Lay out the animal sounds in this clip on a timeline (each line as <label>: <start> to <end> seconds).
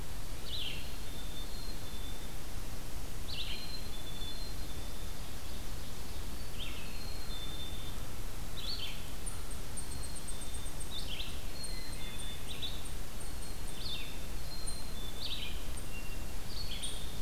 Red-eyed Vireo (Vireo olivaceus): 0.0 to 17.2 seconds
Black-capped Chickadee (Poecile atricapillus): 0.5 to 2.5 seconds
Black-capped Chickadee (Poecile atricapillus): 3.3 to 5.2 seconds
Black-capped Chickadee (Poecile atricapillus): 6.8 to 8.0 seconds
Eastern Chipmunk (Tamias striatus): 9.1 to 17.2 seconds
Black-capped Chickadee (Poecile atricapillus): 9.6 to 10.8 seconds
Black-capped Chickadee (Poecile atricapillus): 11.5 to 12.5 seconds
Black-capped Chickadee (Poecile atricapillus): 13.0 to 15.4 seconds
Black-capped Chickadee (Poecile atricapillus): 16.5 to 17.2 seconds